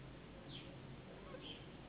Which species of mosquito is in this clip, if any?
Anopheles gambiae s.s.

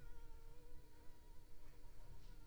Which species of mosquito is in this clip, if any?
Anopheles arabiensis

